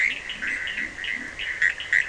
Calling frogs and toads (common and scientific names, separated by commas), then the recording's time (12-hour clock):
Bischoff's tree frog (Boana bischoffi), Leptodactylus latrans, Cochran's lime tree frog (Sphaenorhynchus surdus)
12:00am